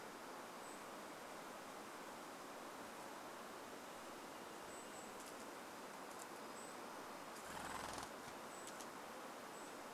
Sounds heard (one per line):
Golden-crowned Kinglet call
bird wingbeats